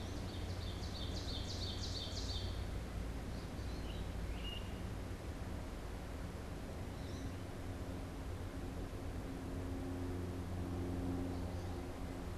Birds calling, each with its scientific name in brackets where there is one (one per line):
Ovenbird (Seiurus aurocapilla)
American Goldfinch (Spinus tristis)
Great Crested Flycatcher (Myiarchus crinitus)